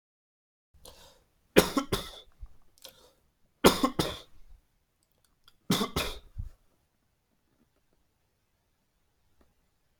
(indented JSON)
{
  "expert_labels": [
    {
      "quality": "good",
      "cough_type": "dry",
      "dyspnea": false,
      "wheezing": false,
      "stridor": false,
      "choking": false,
      "congestion": false,
      "nothing": true,
      "diagnosis": "upper respiratory tract infection",
      "severity": "mild"
    }
  ],
  "age": 43,
  "gender": "male",
  "respiratory_condition": false,
  "fever_muscle_pain": false,
  "status": "healthy"
}